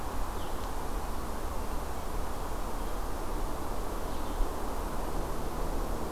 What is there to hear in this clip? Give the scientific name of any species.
forest ambience